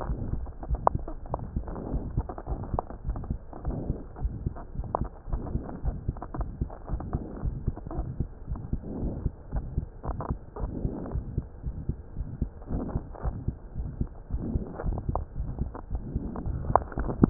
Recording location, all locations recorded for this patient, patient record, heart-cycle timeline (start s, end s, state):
aortic valve (AV)
aortic valve (AV)+pulmonary valve (PV)+tricuspid valve (TV)+mitral valve (MV)
#Age: Child
#Sex: Female
#Height: 118.0 cm
#Weight: 21.1 kg
#Pregnancy status: False
#Murmur: Present
#Murmur locations: aortic valve (AV)+mitral valve (MV)+pulmonary valve (PV)+tricuspid valve (TV)
#Most audible location: pulmonary valve (PV)
#Systolic murmur timing: Early-systolic
#Systolic murmur shape: Plateau
#Systolic murmur grading: II/VI
#Systolic murmur pitch: Medium
#Systolic murmur quality: Harsh
#Diastolic murmur timing: nan
#Diastolic murmur shape: nan
#Diastolic murmur grading: nan
#Diastolic murmur pitch: nan
#Diastolic murmur quality: nan
#Outcome: Abnormal
#Campaign: 2015 screening campaign
0.00	0.46	unannotated
0.46	0.68	diastole
0.68	0.80	S1
0.80	0.92	systole
0.92	1.04	S2
1.04	1.30	diastole
1.30	1.40	S1
1.40	1.54	systole
1.54	1.68	S2
1.68	1.92	diastole
1.92	2.08	S1
2.08	2.16	systole
2.16	2.30	S2
2.30	2.50	diastole
2.50	2.62	S1
2.62	2.70	systole
2.70	2.80	S2
2.80	3.06	diastole
3.06	3.18	S1
3.18	3.28	systole
3.28	3.40	S2
3.40	3.66	diastole
3.66	3.78	S1
3.78	3.86	systole
3.86	4.00	S2
4.00	4.20	diastole
4.20	4.36	S1
4.36	4.42	systole
4.42	4.54	S2
4.54	4.76	diastole
4.76	4.90	S1
4.90	4.98	systole
4.98	5.08	S2
5.08	5.30	diastole
5.30	5.44	S1
5.44	5.52	systole
5.52	5.62	S2
5.62	5.84	diastole
5.84	5.98	S1
5.98	6.06	systole
6.06	6.16	S2
6.16	6.38	diastole
6.38	6.52	S1
6.52	6.60	systole
6.60	6.70	S2
6.70	6.92	diastole
6.92	7.04	S1
7.04	7.12	systole
7.12	7.22	S2
7.22	7.44	diastole
7.44	7.58	S1
7.58	7.66	systole
7.66	7.76	S2
7.76	7.96	diastole
7.96	8.10	S1
8.10	8.18	systole
8.18	8.28	S2
8.28	8.50	diastole
8.50	8.60	S1
8.60	8.72	systole
8.72	8.80	S2
8.80	9.00	diastole
9.00	9.16	S1
9.16	9.24	systole
9.24	9.34	S2
9.34	9.54	diastole
9.54	9.68	S1
9.68	9.76	systole
9.76	9.88	S2
9.88	10.08	diastole
10.08	10.18	S1
10.18	10.28	systole
10.28	10.40	S2
10.40	10.59	diastole
10.59	10.72	S1
10.72	10.82	systole
10.82	10.92	S2
10.92	11.14	diastole
11.14	11.26	S1
11.26	11.36	systole
11.36	11.46	S2
11.46	11.66	diastole
11.66	11.76	S1
11.76	11.86	systole
11.86	11.98	S2
11.98	12.18	diastole
12.18	12.28	S1
12.28	12.40	systole
12.40	12.52	S2
12.52	12.72	diastole
12.72	12.84	S1
12.84	12.92	systole
12.92	13.04	S2
13.04	13.26	diastole
13.26	13.36	S1
13.36	13.46	systole
13.46	13.56	S2
13.56	13.78	diastole
13.78	13.90	S1
13.90	13.96	systole
13.96	14.08	S2
14.08	14.32	diastole
14.32	14.46	S1
14.46	14.52	systole
14.52	14.68	S2
14.68	14.86	diastole
14.86	14.99	S1
14.99	15.07	systole
15.07	15.17	S2
15.17	15.38	diastole
15.38	15.49	S1
15.49	15.60	systole
15.60	15.72	S2
15.72	15.92	diastole
15.92	16.04	S1
16.04	16.14	systole
16.14	16.24	S2
16.24	16.44	diastole
16.44	17.30	unannotated